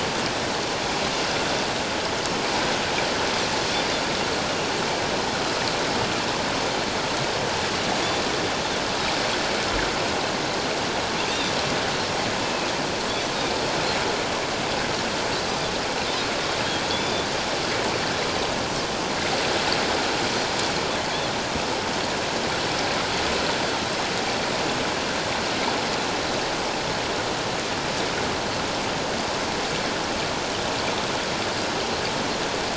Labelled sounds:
12.4	12.7	Pacific white-sided dolphin, 2.3 to 2.7 kHz
16.8	17.3	Pacific white-sided dolphin, 3.3 to 3.6 kHz

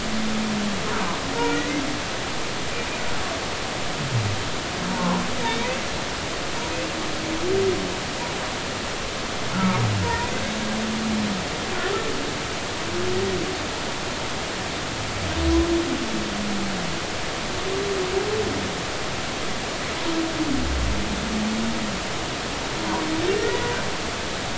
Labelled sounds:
1.4	1.6	humpback whale, 1.4 to 1.5 kHz
4.9	5.8	humpback whale, 0.83 to 2.7 kHz
6.7	7.0	humpback whale, 2.5 to 2.8 kHz
9.5	10.3	humpback whale, 0.86 to 1.5 kHz
23.3	23.6	humpback whale, 1.8 to 2.0 kHz

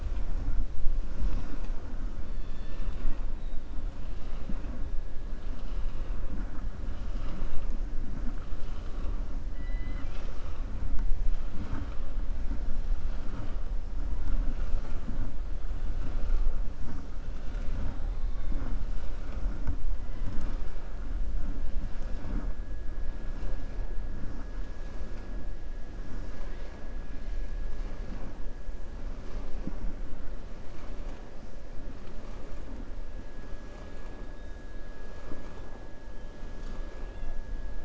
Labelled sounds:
2.2	3.2	killer whale, 1.1 to 4.7 kHz
9.5	10.6	killer whale, 1.2 to 6.7 kHz

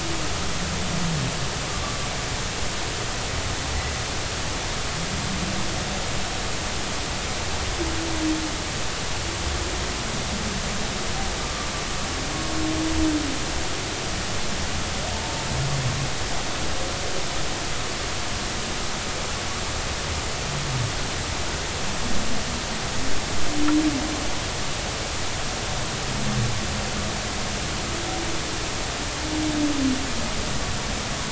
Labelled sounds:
11.4	11.7	humpback whale, 1.1 to 1.2 kHz

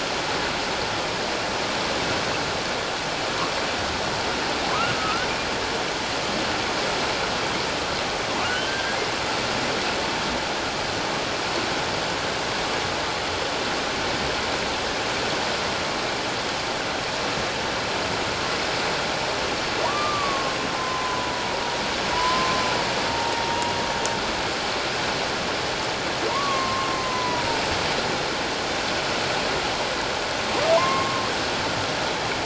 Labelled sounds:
4.9	5.3	humpback whale, 1.2 to 1.6 kHz
8.7	9.0	humpback whale, 1.5 to 1.7 kHz
19.8	21.4	humpback whale, 0.91 to 1.3 kHz
22.1	23.7	humpback whale, 0.81 to 1.1 kHz
26.3	27.5	humpback whale, 0.88 to 1.2 kHz
30.8	31.2	humpback whale, 0.91 to 2.2 kHz

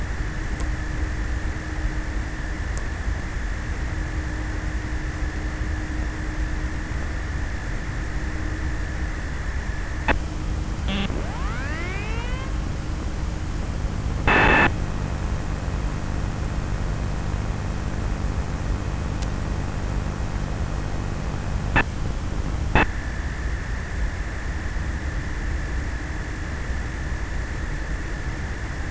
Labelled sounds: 9.1	15.4	abiotic sound, 0 to 8.0 kHz

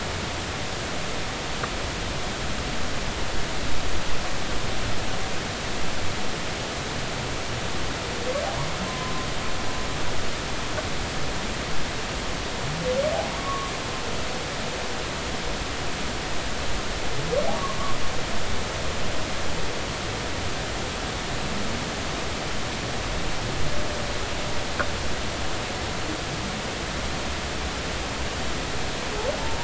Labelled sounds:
8.9	9.1	humpback whale, 0.96 to 1.1 kHz
13.4	13.7	humpback whale, 1.0 to 1.2 kHz
17.5	17.9	humpback whale, 1.0 to 1.2 kHz

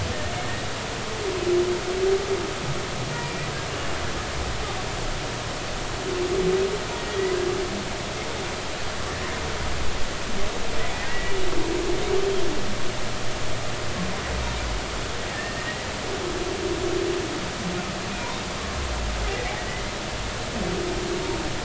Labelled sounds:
3.2	3.5	humpback whale, 2.3 to 2.5 kHz
7.0	7.4	humpback whale, 1.8 to 2.0 kHz
11.0	11.3	humpback whale, 1.8 to 2.0 kHz
15.3	15.9	humpback whale, 1.7 to 2.0 kHz
19.3	19.5	humpback whale, 1.9 to 2.1 kHz

